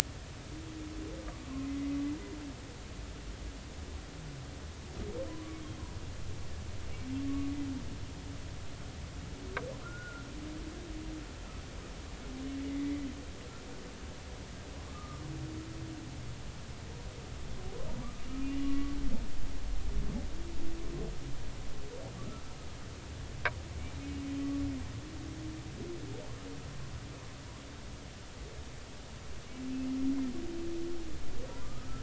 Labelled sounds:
5.3	5.6	humpback whale, 0.96 to 1.2 kHz
9.8	10.2	humpback whale, 1.3 to 1.5 kHz
12.7	13.1	humpback whale, 1.9 to 2.1 kHz
14.9	15.2	humpback whale, 1.1 to 1.3 kHz
18.4	19.2	humpback whale, 1.1 to 3.0 kHz
24.4	24.6	humpback whale, 1.1 to 1.2 kHz
31.6	32.0	humpback whale, 1.2 to 1.4 kHz

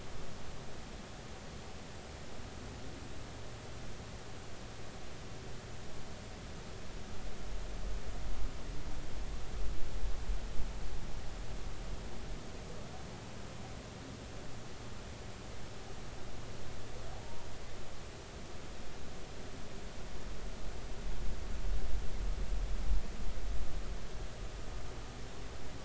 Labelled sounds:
17.1	17.5	humpback whale, 0.80 to 1.1 kHz

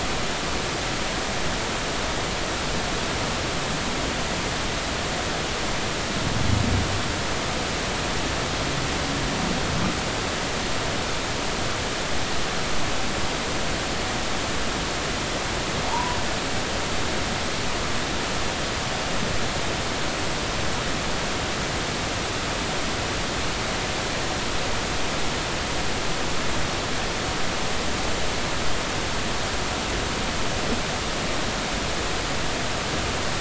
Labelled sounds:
15.8	16.2	humpback whale, 0.83 to 1.1 kHz

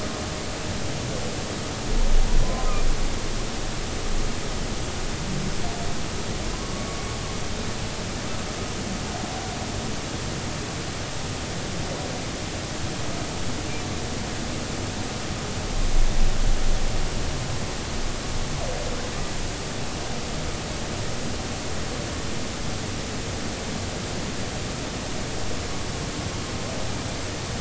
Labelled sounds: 2.4	2.8	humpback whale, 0.96 to 1.1 kHz
6.5	6.9	humpback whale, 0.99 to 1.2 kHz

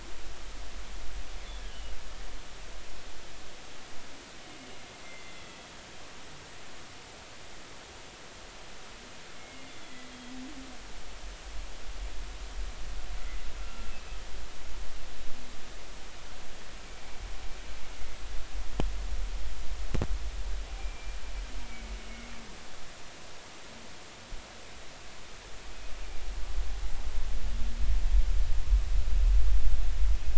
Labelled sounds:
1.7	1.9	humpback whale, 2.8 to 3.0 kHz
5.0	5.6	humpback whale, 2.0 to 2.1 kHz
9.3	10.0	humpback whale, 2.1 to 3.5 kHz
13.6	13.9	humpback whale, 1.3 to 1.4 kHz
20.8	21.2	humpback whale, 2.2 to 2.5 kHz
21.7	22.0	humpback whale, 2.2 to 2.3 kHz

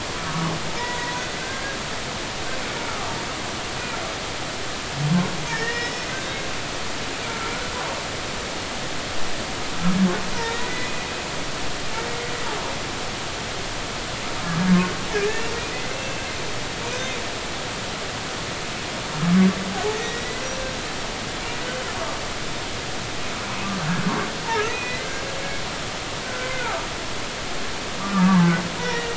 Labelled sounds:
0.2	1.8	humpback whale, 0.86 to 2.0 kHz
2.9	3.1	humpback whale, 1.1 to 1.4 kHz
5.5	6.1	humpback whale, 1.6 to 5.4 kHz
7.1	7.5	humpback whale, 1.3 to 1.6 kHz
10.4	10.9	humpback whale, 1.8 to 3.9 kHz
15.9	17.1	humpback whale, 2.6 to 6.3 kHz
20.0	20.4	humpback whale, 1.8 to 2.1 kHz
24.7	25.2	humpback whale, 1.5 to 2.6 kHz
26.2	26.8	humpback whale, 1.2 to 1.6 kHz
28.0	29.1	humpback whale, 0.83 to 2.0 kHz

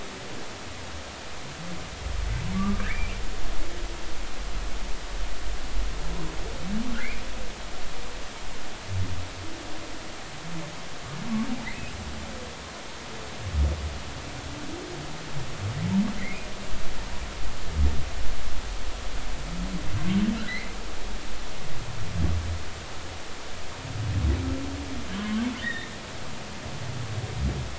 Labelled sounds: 2.5	3.2	humpback whale, 1.1 to 2.5 kHz
16.2	16.5	humpback whale, 1.9 to 2.6 kHz
20.5	20.8	humpback whale, 1.8 to 2.2 kHz
25.2	25.9	humpback whale, 0.96 to 3.8 kHz

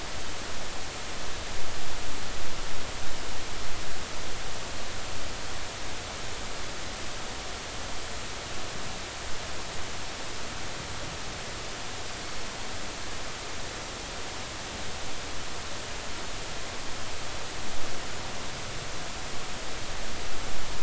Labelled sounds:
12.2	12.5	Pacific white-sided dolphin, 4.2 to 4.5 kHz

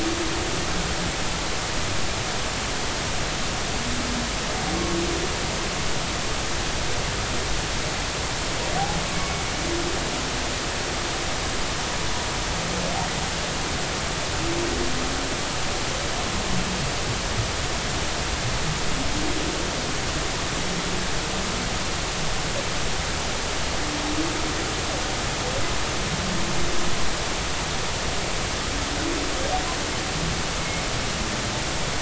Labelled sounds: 9.1	9.4	humpback whale, 2.2 to 2.4 kHz

